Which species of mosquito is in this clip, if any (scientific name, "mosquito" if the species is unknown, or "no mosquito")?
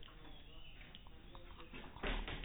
no mosquito